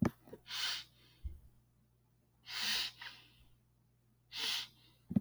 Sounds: Sniff